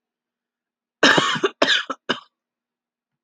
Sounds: Cough